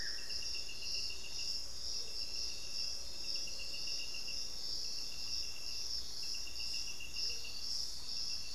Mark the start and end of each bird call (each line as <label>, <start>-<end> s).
Buff-throated Woodcreeper (Xiphorhynchus guttatus), 0.0-0.6 s
Amazonian Motmot (Momotus momota), 0.0-7.6 s